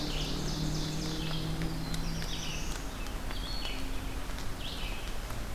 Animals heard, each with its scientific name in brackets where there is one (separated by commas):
unknown mammal, Red-eyed Vireo (Vireo olivaceus), Black-throated Blue Warbler (Setophaga caerulescens)